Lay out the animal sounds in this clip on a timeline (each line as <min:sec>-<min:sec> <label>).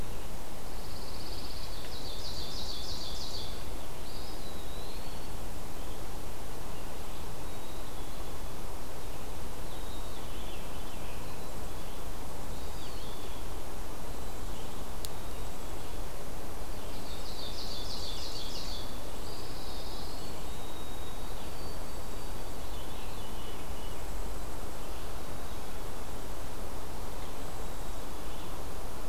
0:00.6-0:01.8 Pine Warbler (Setophaga pinus)
0:01.6-0:03.7 Ovenbird (Seiurus aurocapilla)
0:03.9-0:05.0 Black-capped Chickadee (Poecile atricapillus)
0:04.0-0:05.4 Eastern Wood-Pewee (Contopus virens)
0:07.3-0:08.6 Black-capped Chickadee (Poecile atricapillus)
0:09.6-0:10.8 Black-capped Chickadee (Poecile atricapillus)
0:09.9-0:11.4 Veery (Catharus fuscescens)
0:11.1-0:12.1 Black-capped Chickadee (Poecile atricapillus)
0:12.5-0:13.5 Black-capped Chickadee (Poecile atricapillus)
0:12.6-0:13.6 Eastern Wood-Pewee (Contopus virens)
0:14.0-0:14.8 Blackpoll Warbler (Setophaga striata)
0:15.0-0:16.1 Black-capped Chickadee (Poecile atricapillus)
0:15.1-0:16.0 Blackpoll Warbler (Setophaga striata)
0:16.5-0:18.5 Blackpoll Warbler (Setophaga striata)
0:16.6-0:19.1 Ovenbird (Seiurus aurocapilla)
0:19.2-0:20.4 Eastern Wood-Pewee (Contopus virens)
0:19.3-0:20.5 Pine Warbler (Setophaga pinus)
0:20.0-0:20.7 Blackpoll Warbler (Setophaga striata)
0:20.5-0:22.4 White-throated Sparrow (Zonotrichia albicollis)
0:21.7-0:22.4 Blackpoll Warbler (Setophaga striata)
0:22.5-0:24.0 Veery (Catharus fuscescens)
0:23.7-0:24.9 Blackpoll Warbler (Setophaga striata)
0:25.1-0:26.2 Black-capped Chickadee (Poecile atricapillus)
0:25.8-0:26.6 Blackpoll Warbler (Setophaga striata)
0:27.3-0:28.1 Blackpoll Warbler (Setophaga striata)
0:27.5-0:28.6 Black-capped Chickadee (Poecile atricapillus)